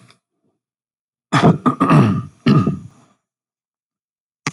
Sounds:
Throat clearing